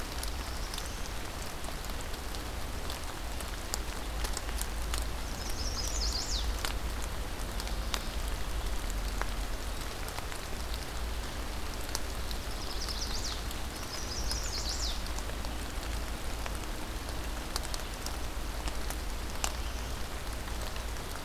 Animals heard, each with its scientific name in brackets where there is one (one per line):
Black-throated Blue Warbler (Setophaga caerulescens)
Chestnut-sided Warbler (Setophaga pensylvanica)